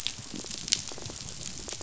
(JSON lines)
{"label": "biophony, rattle", "recorder": "SoundTrap 500"}